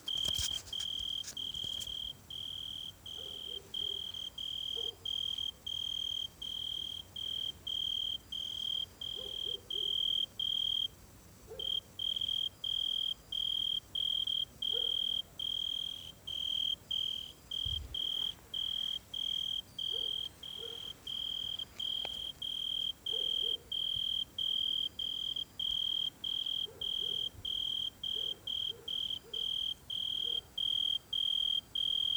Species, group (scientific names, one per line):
Oecanthus pellucens
Orthoptera